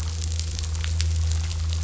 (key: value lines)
label: anthrophony, boat engine
recorder: SoundTrap 500